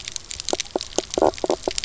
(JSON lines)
{"label": "biophony, knock croak", "recorder": "SoundTrap 300"}